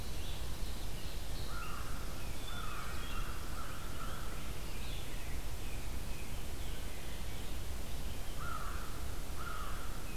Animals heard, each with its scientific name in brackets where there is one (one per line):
American Crow (Corvus brachyrhynchos)